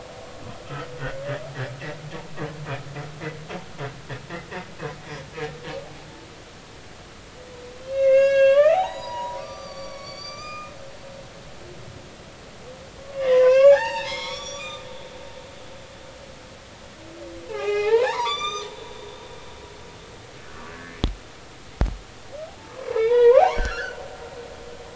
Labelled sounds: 7.9	10.7	humpback whale, 0.80 to 7.2 kHz
13.1	14.9	humpback whale, 0.80 to 7.0 kHz
17.5	18.7	humpback whale, 0.80 to 7.4 kHz
20.7	21.0	humpback whale, 1.5 to 1.9 kHz
22.5	24.4	humpback whale, 0.80 to 4.7 kHz

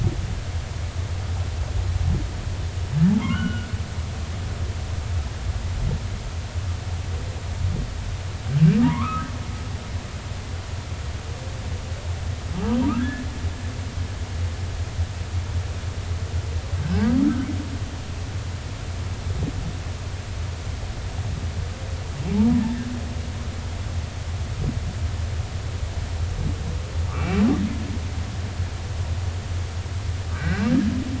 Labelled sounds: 3.3	3.7	humpback whale, 1.3 to 3.0 kHz
8.8	9.3	humpback whale, 0.86 to 2.6 kHz
12.9	13.2	humpback whale, 1.5 to 1.9 kHz
16.8	17.1	humpback whale, 1.5 to 1.7 kHz
27.1	27.4	humpback whale, 2.2 to 2.8 kHz
30.3	30.7	humpback whale, 1.4 to 2.8 kHz

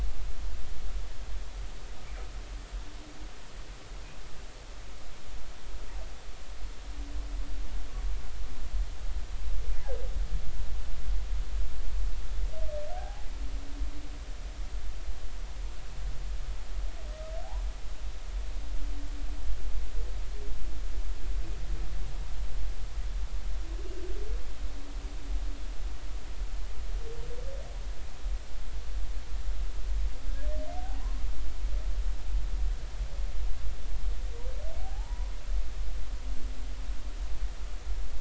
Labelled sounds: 12.9	13.3	humpback whale, 0.80 to 0.93 kHz
30.7	31.2	humpback whale, 0.80 to 1.1 kHz
34.8	35.3	humpback whale, 0.80 to 1.1 kHz

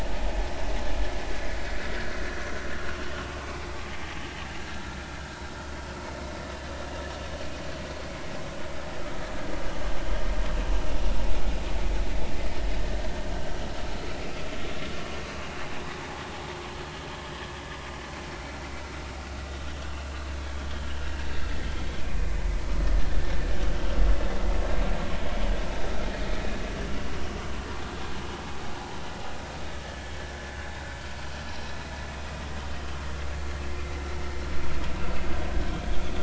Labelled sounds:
2.0	2.6	vessel noise, 1.3 to 1.8 kHz
3.1	3.4	vessel noise, 1.1 to 1.2 kHz
20.6	20.9	vessel noise, 3.1 to 3.4 kHz

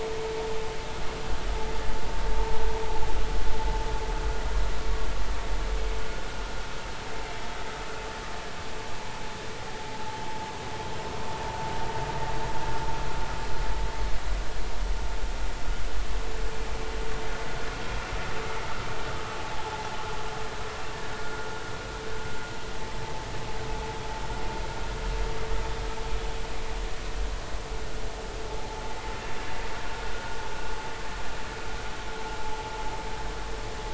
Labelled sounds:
19.4	19.6	vessel noise, 0.80 to 0.90 kHz
21.2	21.5	vessel noise, 1.4 to 1.5 kHz
28.6	28.8	vessel noise, 0.80 to 0.93 kHz

